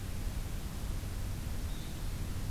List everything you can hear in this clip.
Blue-headed Vireo